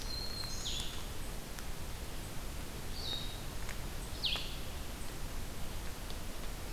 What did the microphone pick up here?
Black-throated Green Warbler, Blue-headed Vireo